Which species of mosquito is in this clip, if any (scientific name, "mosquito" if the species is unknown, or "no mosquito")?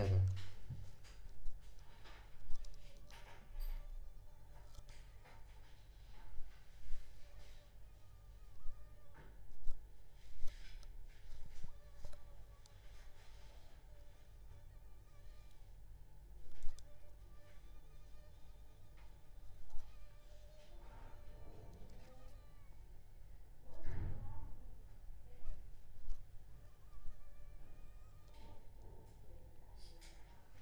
Aedes aegypti